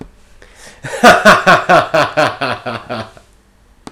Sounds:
Laughter